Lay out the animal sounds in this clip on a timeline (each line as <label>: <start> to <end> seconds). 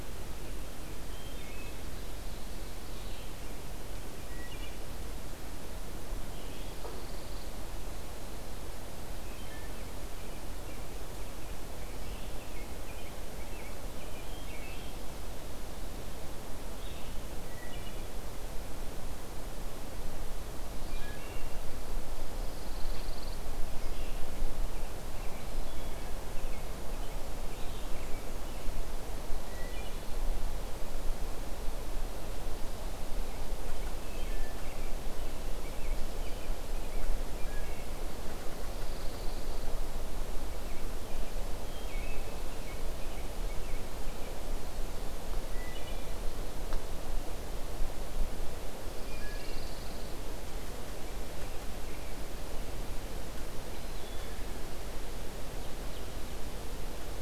Wood Thrush (Hylocichla mustelina): 1.0 to 1.9 seconds
Red-eyed Vireo (Vireo olivaceus): 2.8 to 6.7 seconds
Wood Thrush (Hylocichla mustelina): 4.2 to 4.9 seconds
Pine Warbler (Setophaga pinus): 6.5 to 7.5 seconds
Wood Thrush (Hylocichla mustelina): 9.2 to 9.8 seconds
American Robin (Turdus migratorius): 9.9 to 15.1 seconds
Red-eyed Vireo (Vireo olivaceus): 14.5 to 24.2 seconds
Wood Thrush (Hylocichla mustelina): 17.5 to 18.2 seconds
Wood Thrush (Hylocichla mustelina): 20.8 to 21.8 seconds
Pine Warbler (Setophaga pinus): 22.2 to 23.4 seconds
American Robin (Turdus migratorius): 24.4 to 27.2 seconds
Red-eyed Vireo (Vireo olivaceus): 27.4 to 28.0 seconds
Wood Thrush (Hylocichla mustelina): 29.4 to 30.2 seconds
Wood Thrush (Hylocichla mustelina): 33.9 to 34.7 seconds
American Robin (Turdus migratorius): 33.9 to 37.3 seconds
Wood Thrush (Hylocichla mustelina): 37.0 to 38.2 seconds
Pine Warbler (Setophaga pinus): 38.6 to 39.7 seconds
Wood Thrush (Hylocichla mustelina): 41.6 to 42.3 seconds
American Robin (Turdus migratorius): 42.1 to 44.4 seconds
Wood Thrush (Hylocichla mustelina): 45.5 to 46.2 seconds
Pine Warbler (Setophaga pinus): 48.8 to 50.1 seconds
Wood Thrush (Hylocichla mustelina): 49.0 to 49.7 seconds
Wood Thrush (Hylocichla mustelina): 53.7 to 54.4 seconds